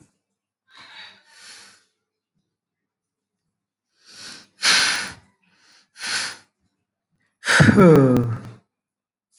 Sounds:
Sigh